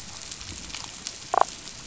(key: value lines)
label: biophony, damselfish
recorder: SoundTrap 500